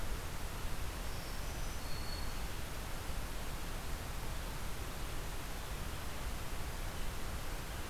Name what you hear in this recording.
Black-throated Green Warbler